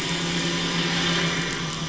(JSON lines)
{"label": "anthrophony, boat engine", "recorder": "SoundTrap 500"}